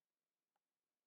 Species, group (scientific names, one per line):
Steropleurus andalusius
Orthoptera